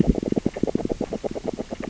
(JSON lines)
{"label": "biophony, grazing", "recorder": "SoundTrap 600 or HydroMoth"}